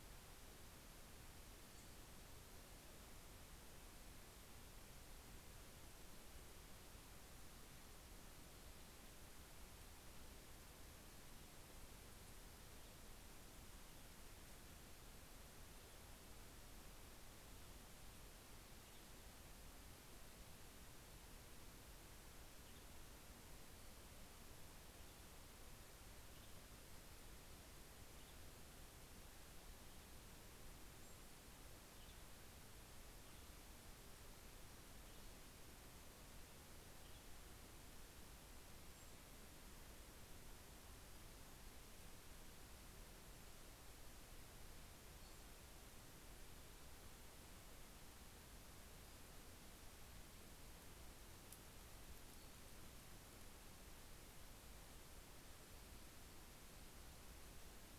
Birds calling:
Western Tanager (Piranga ludoviciana)

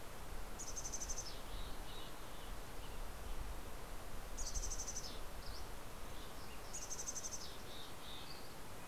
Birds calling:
Western Tanager (Piranga ludoviciana)
Dusky Flycatcher (Empidonax oberholseri)
Mountain Chickadee (Poecile gambeli)
Red-breasted Nuthatch (Sitta canadensis)

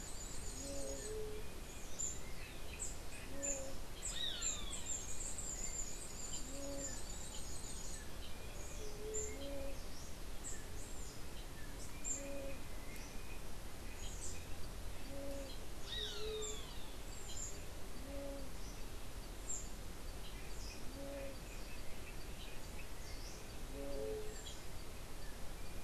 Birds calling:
Roadside Hawk (Rupornis magnirostris)
unidentified bird
White-tipped Dove (Leptotila verreauxi)
Scrub Tanager (Stilpnia vitriolina)

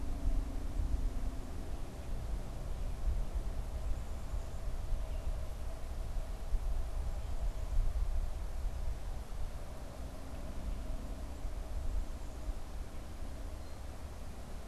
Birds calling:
unidentified bird

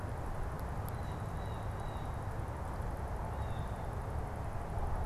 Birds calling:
Blue Jay (Cyanocitta cristata)

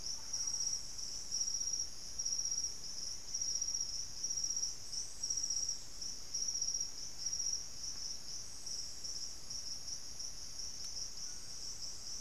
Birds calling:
White-throated Toucan (Ramphastos tucanus)
Thrush-like Wren (Campylorhynchus turdinus)
Hauxwell's Thrush (Turdus hauxwelli)

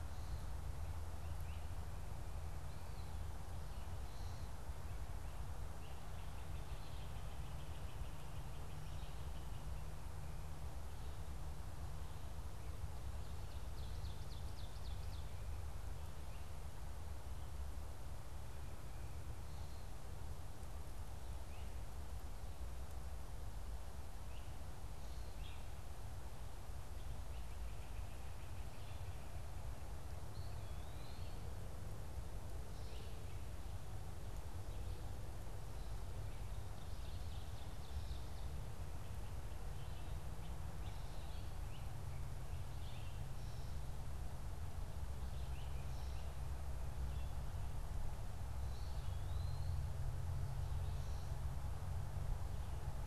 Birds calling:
Ovenbird (Seiurus aurocapilla)
Red-eyed Vireo (Vireo olivaceus)
Eastern Wood-Pewee (Contopus virens)
Great Crested Flycatcher (Myiarchus crinitus)

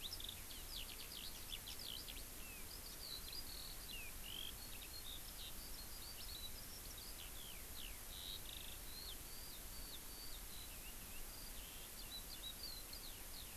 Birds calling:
Eurasian Skylark (Alauda arvensis)

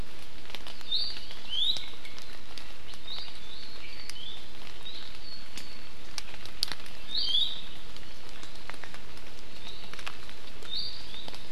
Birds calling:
Iiwi (Drepanis coccinea)

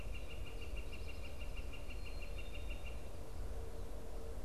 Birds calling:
Northern Flicker (Colaptes auratus)
Black-capped Chickadee (Poecile atricapillus)
Great Crested Flycatcher (Myiarchus crinitus)

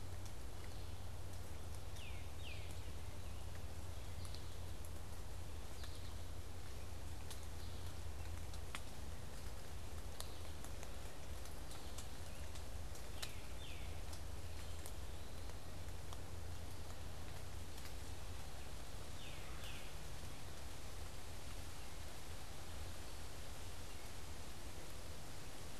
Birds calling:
Eastern Wood-Pewee (Contopus virens)
American Goldfinch (Spinus tristis)
Tufted Titmouse (Baeolophus bicolor)

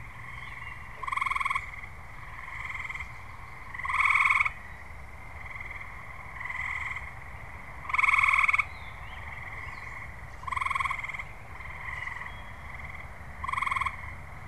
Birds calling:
Gray Catbird (Dumetella carolinensis)
Wood Thrush (Hylocichla mustelina)

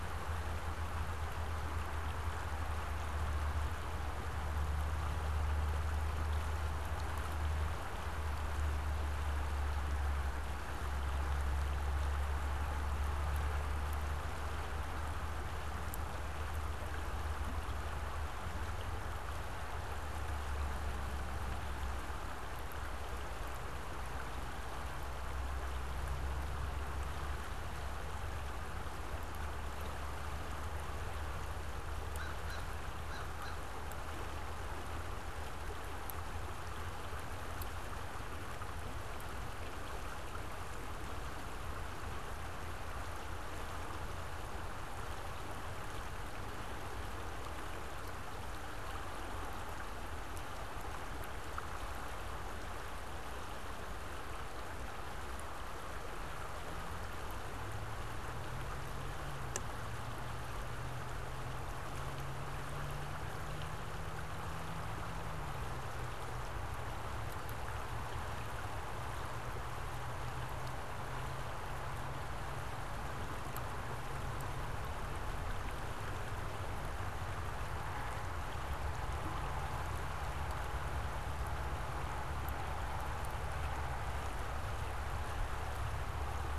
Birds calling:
American Crow (Corvus brachyrhynchos)

